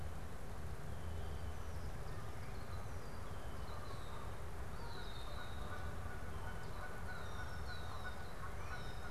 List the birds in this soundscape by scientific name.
Agelaius phoeniceus, Branta canadensis